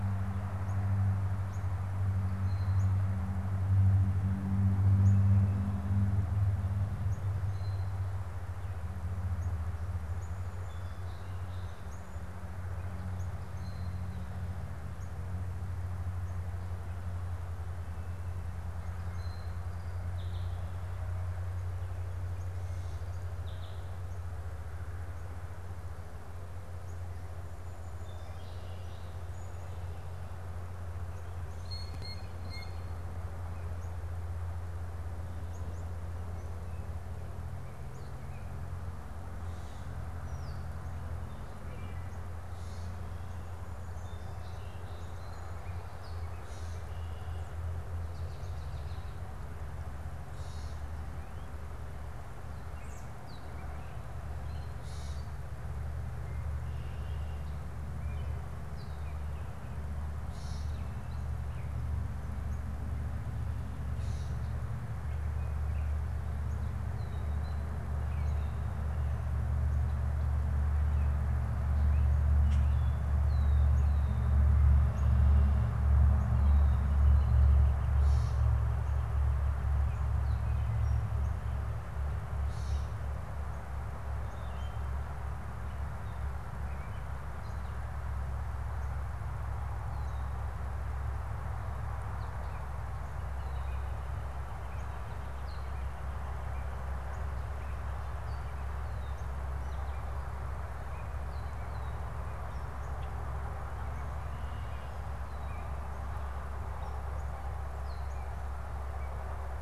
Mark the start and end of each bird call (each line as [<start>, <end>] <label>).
[0.00, 3.10] Northern Cardinal (Cardinalis cardinalis)
[4.90, 15.90] Northern Cardinal (Cardinalis cardinalis)
[10.20, 13.10] Song Sparrow (Melospiza melodia)
[18.30, 21.00] Song Sparrow (Melospiza melodia)
[27.60, 29.80] Song Sparrow (Melospiza melodia)
[31.50, 33.00] Blue Jay (Cyanocitta cristata)
[42.40, 43.10] Gray Catbird (Dumetella carolinensis)
[43.70, 45.80] Song Sparrow (Melospiza melodia)
[46.30, 47.00] Gray Catbird (Dumetella carolinensis)
[47.90, 49.30] American Robin (Turdus migratorius)
[50.30, 50.80] Gray Catbird (Dumetella carolinensis)
[52.40, 55.20] Gray Catbird (Dumetella carolinensis)
[60.00, 60.90] Gray Catbird (Dumetella carolinensis)
[63.80, 64.50] Gray Catbird (Dumetella carolinensis)
[72.30, 72.80] Common Grackle (Quiscalus quiscula)
[76.10, 81.70] Northern Flicker (Colaptes auratus)
[77.90, 78.60] Gray Catbird (Dumetella carolinensis)
[82.30, 82.80] Gray Catbird (Dumetella carolinensis)
[84.10, 84.90] Wood Thrush (Hylocichla mustelina)
[92.90, 99.50] Northern Flicker (Colaptes auratus)
[103.70, 105.10] Red-winged Blackbird (Agelaius phoeniceus)